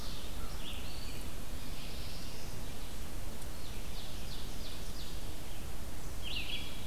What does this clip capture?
Red-eyed Vireo, Black-throated Blue Warbler, Ovenbird